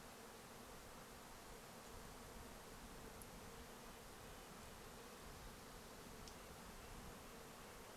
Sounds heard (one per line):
insect buzz
Red-breasted Nuthatch song